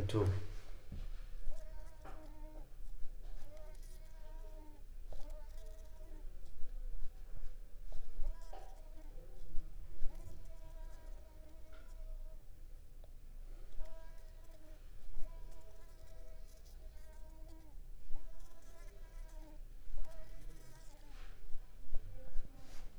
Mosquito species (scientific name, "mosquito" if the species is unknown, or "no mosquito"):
Mansonia africanus